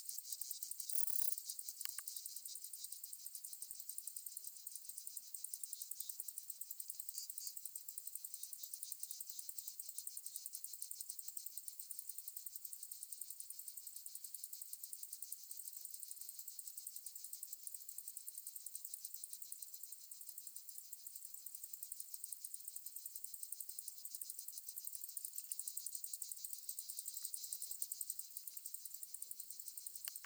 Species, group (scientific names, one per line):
Pholidoptera femorata
Orthoptera